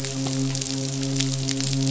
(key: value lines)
label: biophony, midshipman
recorder: SoundTrap 500